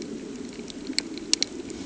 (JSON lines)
{"label": "anthrophony, boat engine", "recorder": "HydroMoth"}